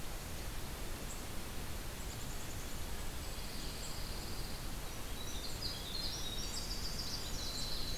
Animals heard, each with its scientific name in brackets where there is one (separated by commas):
Golden-crowned Kinglet (Regulus satrapa), Winter Wren (Troglodytes hiemalis), Black-capped Chickadee (Poecile atricapillus), Pine Warbler (Setophaga pinus)